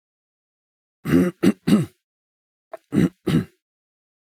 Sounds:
Throat clearing